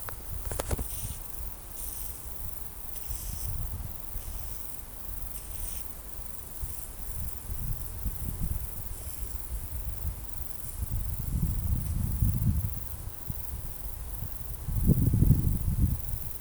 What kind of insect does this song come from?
orthopteran